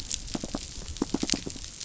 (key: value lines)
label: biophony
recorder: SoundTrap 500